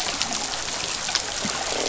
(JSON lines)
{"label": "biophony, croak", "recorder": "SoundTrap 500"}